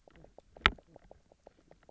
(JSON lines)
{"label": "biophony, knock croak", "recorder": "SoundTrap 300"}